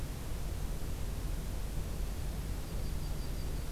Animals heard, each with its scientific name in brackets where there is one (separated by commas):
Yellow-rumped Warbler (Setophaga coronata)